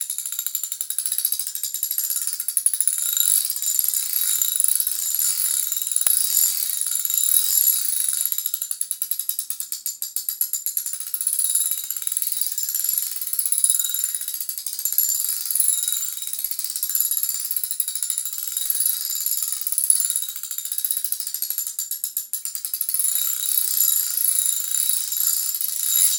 Is this a bird?
no